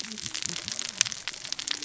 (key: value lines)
label: biophony, cascading saw
recorder: SoundTrap 600 or HydroMoth